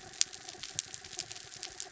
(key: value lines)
label: anthrophony, mechanical
recorder: SoundTrap 300